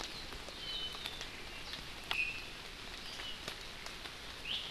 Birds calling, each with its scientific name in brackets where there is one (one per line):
Iiwi (Drepanis coccinea)
Apapane (Himatione sanguinea)